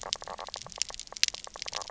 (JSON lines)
{"label": "biophony, knock croak", "recorder": "SoundTrap 300"}